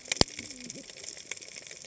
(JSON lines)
{"label": "biophony, cascading saw", "recorder": "HydroMoth"}